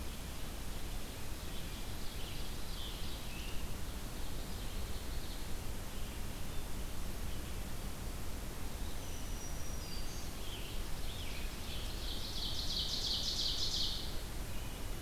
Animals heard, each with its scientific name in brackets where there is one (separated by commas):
Black-throated Green Warbler (Setophaga virens), Scarlet Tanager (Piranga olivacea), Ovenbird (Seiurus aurocapilla)